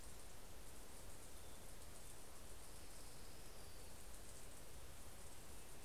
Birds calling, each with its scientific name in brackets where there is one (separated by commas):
Orange-crowned Warbler (Leiothlypis celata)